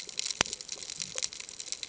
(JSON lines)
{"label": "ambient", "recorder": "HydroMoth"}